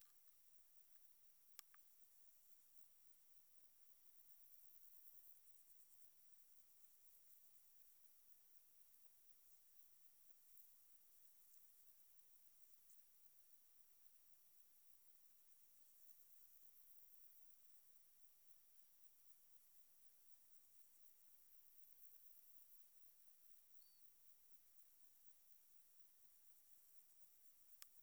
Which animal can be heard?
Metrioptera saussuriana, an orthopteran